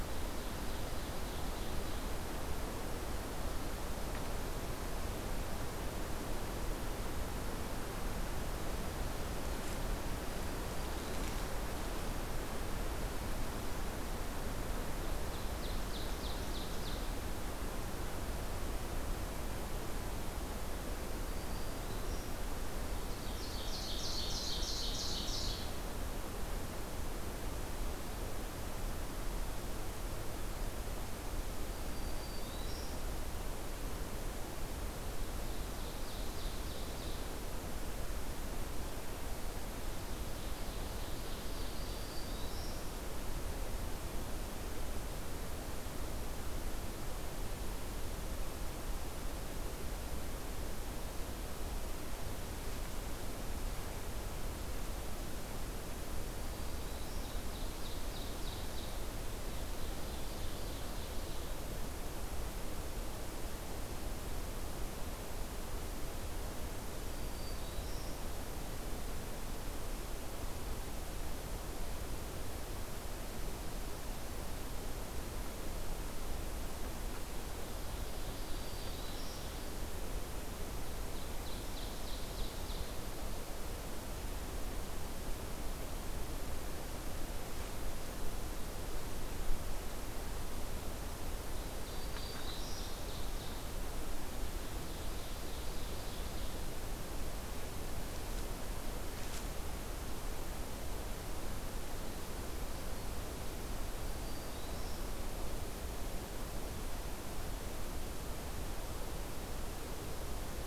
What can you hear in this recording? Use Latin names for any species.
Seiurus aurocapilla, Setophaga virens